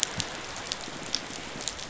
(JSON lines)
{"label": "biophony", "recorder": "SoundTrap 500"}